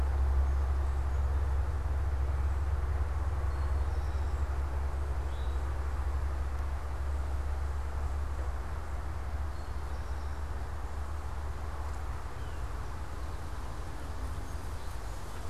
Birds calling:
unidentified bird, Eastern Towhee (Pipilo erythrophthalmus), Song Sparrow (Melospiza melodia)

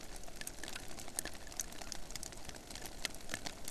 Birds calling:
Hawaiian Petrel (Pterodroma sandwichensis)

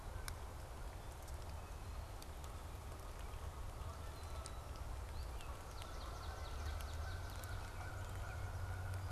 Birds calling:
Canada Goose (Branta canadensis), Swamp Sparrow (Melospiza georgiana)

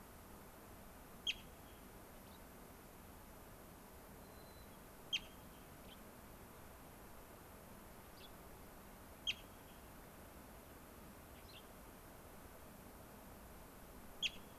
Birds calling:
White-crowned Sparrow (Zonotrichia leucophrys), Gray-crowned Rosy-Finch (Leucosticte tephrocotis)

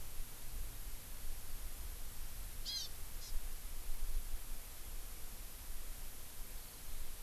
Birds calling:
Hawaii Amakihi (Chlorodrepanis virens)

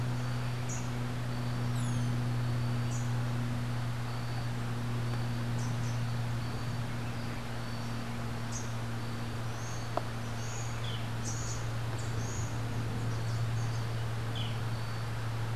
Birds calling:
Boat-billed Flycatcher (Megarynchus pitangua), Buff-throated Saltator (Saltator maximus), Rufous-capped Warbler (Basileuterus rufifrons)

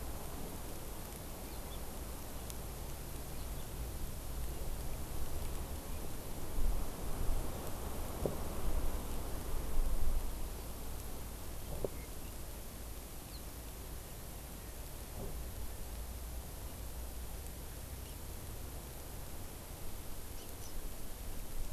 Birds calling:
Hawaii Amakihi (Chlorodrepanis virens)

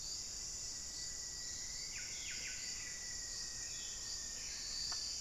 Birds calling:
Buff-breasted Wren (Cantorchilus leucotis), Rufous-fronted Antthrush (Formicarius rufifrons)

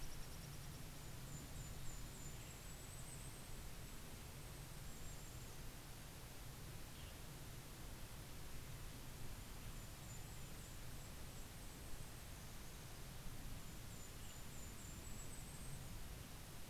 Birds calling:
Red-breasted Nuthatch (Sitta canadensis), Golden-crowned Kinglet (Regulus satrapa), Western Tanager (Piranga ludoviciana)

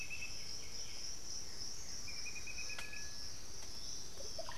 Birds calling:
Black-throated Antbird (Myrmophylax atrothorax), White-winged Becard (Pachyramphus polychopterus), Blue-gray Saltator (Saltator coerulescens), Piratic Flycatcher (Legatus leucophaius), Russet-backed Oropendola (Psarocolius angustifrons)

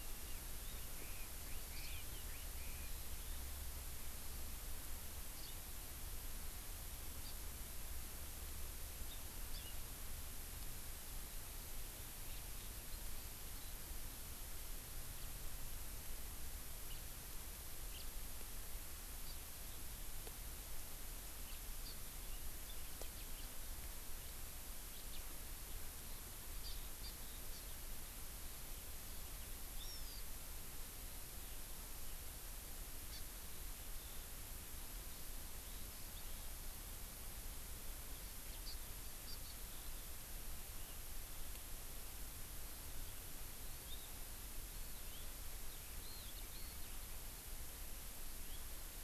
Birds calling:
Chinese Hwamei (Garrulax canorus), Hawaiian Hawk (Buteo solitarius), Hawaii Amakihi (Chlorodrepanis virens), House Finch (Haemorhous mexicanus)

